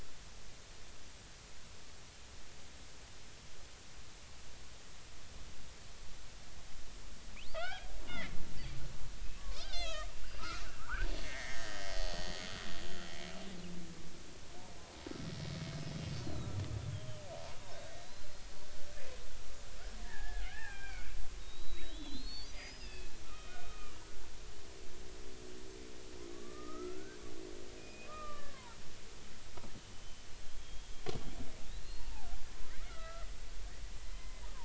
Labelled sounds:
7.4	8.4	killer whale, Bigg's (transient), 1.2 to 5.4 kHz
9.7	12.3	killer whale, Bigg's (transient), 0.86 to 6.8 kHz
15.7	16.0	killer whale, Bigg's (transient), 5.1 to 5.2 kHz
17.6	18.3	killer whale, Bigg's (transient), 3.6 to 4.2 kHz
20.0	21.1	killer whale, Bigg's (transient), 0.80 to 2.8 kHz
21.4	24.0	killer whale, Bigg's (transient), 1.2 to 5.1 kHz
24.6	25.0	killer whale, Bigg's (transient), 1.1 to 1.3 kHz
26.3	28.8	killer whale, Bigg's (transient), 0.86 to 2.6 kHz
30.4	30.9	killer whale, Bigg's (transient), 3.1 to 3.4 kHz
31.8	32.1	killer whale, Bigg's (transient), 4.1 to 4.5 kHz
32.9	33.3	killer whale, Bigg's (transient), 1.2 to 2.0 kHz
34.1	34.4	killer whale, Bigg's (transient), 0.99 to 2.1 kHz

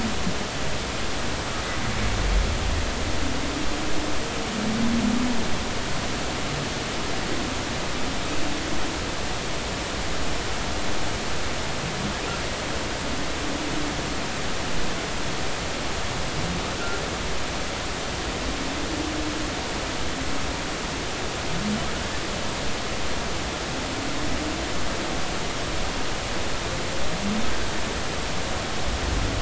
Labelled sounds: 16.8	17.0	humpback whale, 1.3 to 1.6 kHz

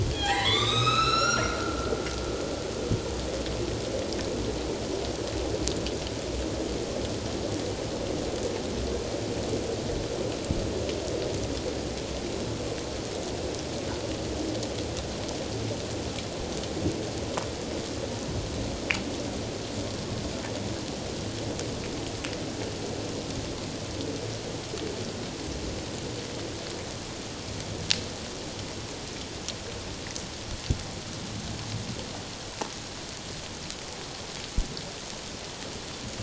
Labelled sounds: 0.1	1.9	humpback whale, 0.78 to 7.8 kHz

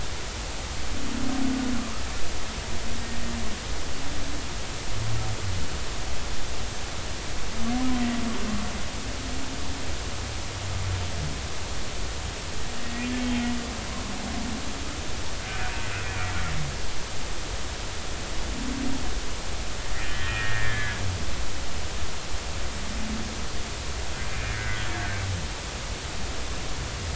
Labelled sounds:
20.0	21.0	humpback whale, 1.6 to 3.2 kHz
24.3	24.9	humpback whale, 1.4 to 2.5 kHz

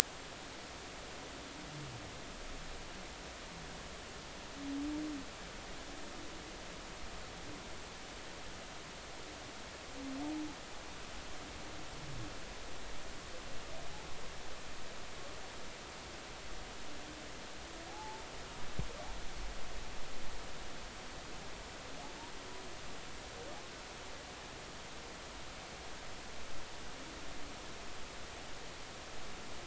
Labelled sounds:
17.9	18.2	humpback whale, 0.80 to 0.93 kHz

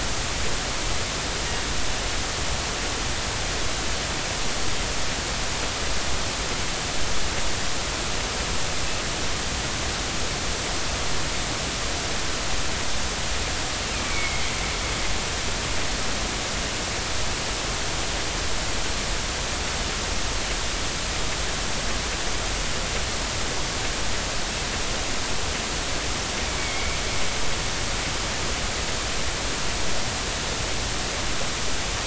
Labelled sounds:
14.0	14.6	killer whale, northern resident, 2.0 to 2.4 kHz
26.6	27.0	killer whale, northern resident, 2.1 to 2.4 kHz

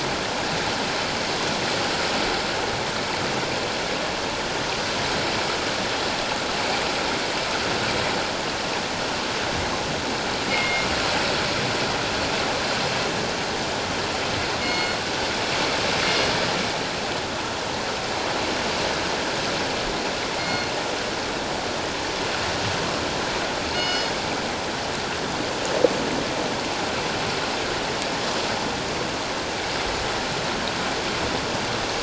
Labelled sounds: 10.5	10.9	killer whale, northern resident, G clan, call N24ii, 2.1 to 2.4 kHz
14.6	15.0	killer whale, northern resident, G clan, call N24ii, 2.1 to 7.2 kHz
20.4	20.7	killer whale, northern resident, G clan, call N24ii, 2.1 to 4.4 kHz
23.7	24.1	killer whale, northern resident, G clan, call N24ii, 2.1 to 6.6 kHz

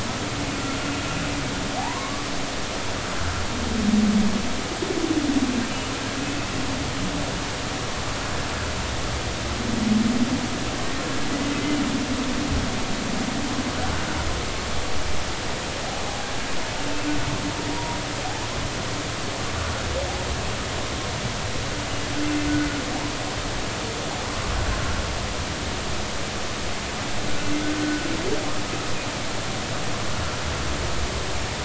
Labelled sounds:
1.8	2.3	humpback whale, 0.80 to 1.2 kHz
17.7	18.0	humpback whale, 0.90 to 0.99 kHz

